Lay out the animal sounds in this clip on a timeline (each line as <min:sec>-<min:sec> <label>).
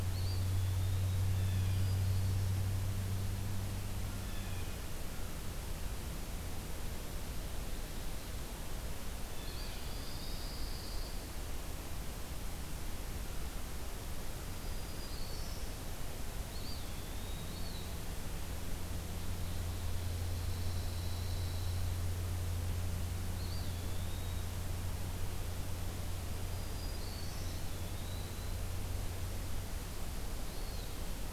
0:00.0-0:01.2 Eastern Wood-Pewee (Contopus virens)
0:01.1-0:04.8 Blue Jay (Cyanocitta cristata)
0:09.3-0:09.9 Blue Jay (Cyanocitta cristata)
0:09.3-0:10.6 Eastern Wood-Pewee (Contopus virens)
0:09.4-0:11.3 Pine Warbler (Setophaga pinus)
0:14.3-0:15.9 Black-throated Green Warbler (Setophaga virens)
0:16.3-0:18.0 Eastern Wood-Pewee (Contopus virens)
0:19.9-0:21.9 Pine Warbler (Setophaga pinus)
0:23.3-0:24.6 Eastern Wood-Pewee (Contopus virens)
0:26.1-0:27.8 Black-throated Green Warbler (Setophaga virens)
0:27.4-0:28.7 Eastern Wood-Pewee (Contopus virens)
0:30.2-0:31.0 Eastern Wood-Pewee (Contopus virens)